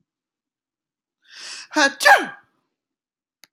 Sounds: Sneeze